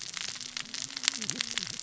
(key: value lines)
label: biophony, cascading saw
recorder: SoundTrap 600 or HydroMoth